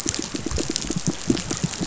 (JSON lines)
{"label": "biophony, pulse", "recorder": "SoundTrap 500"}